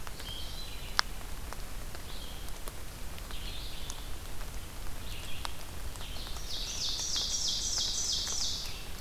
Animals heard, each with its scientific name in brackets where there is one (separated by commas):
Red-eyed Vireo (Vireo olivaceus), Ovenbird (Seiurus aurocapilla)